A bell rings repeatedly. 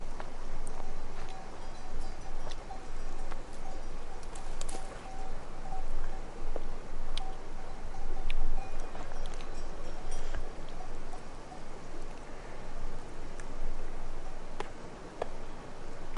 2.7 11.4

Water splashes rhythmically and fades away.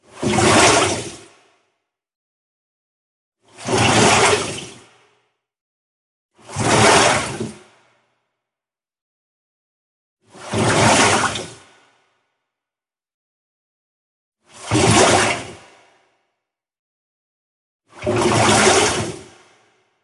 0.1 1.3, 3.6 4.7, 6.5 7.6, 10.3 11.6, 14.5 15.6, 18.0 19.3

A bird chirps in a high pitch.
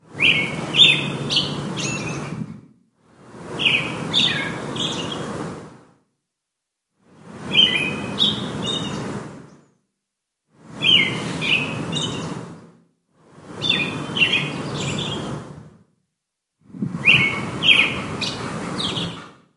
0.1 2.5, 3.4 5.7, 7.3 9.4, 10.7 12.6, 13.5 15.6, 16.7 19.3

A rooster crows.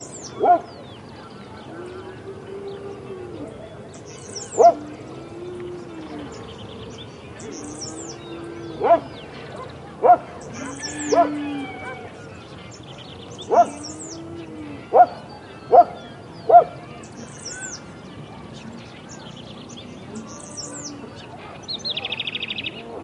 10.9 12.4

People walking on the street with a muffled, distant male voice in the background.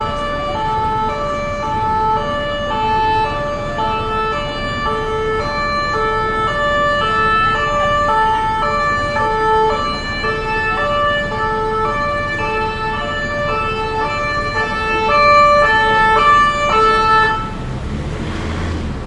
0.0 3.4

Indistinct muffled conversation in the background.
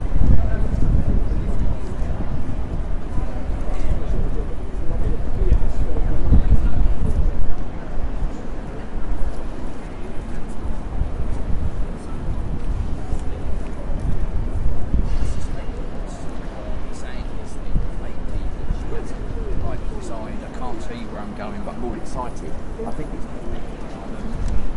0.0 19.0

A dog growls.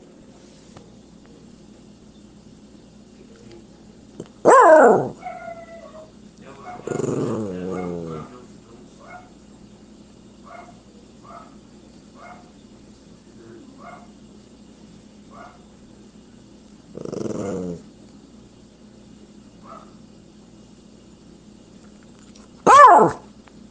6.9 8.2, 17.0 17.8

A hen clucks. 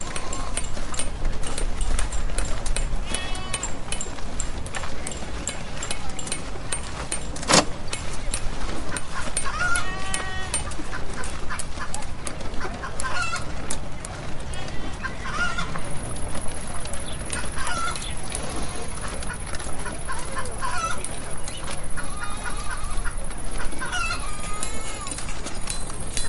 9.7 10.7, 11.4 14.2, 15.6 16.6, 17.8 18.9, 19.8 21.8, 22.8 25.3

